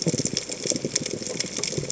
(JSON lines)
{"label": "biophony, chatter", "recorder": "HydroMoth"}